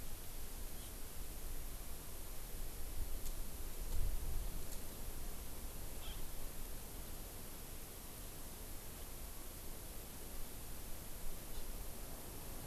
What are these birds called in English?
Hawaii Amakihi